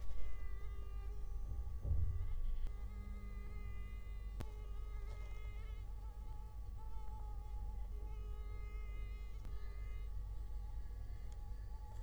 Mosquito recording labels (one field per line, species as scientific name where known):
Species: Culex quinquefasciatus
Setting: cup